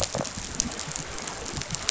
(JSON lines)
{"label": "biophony, rattle response", "recorder": "SoundTrap 500"}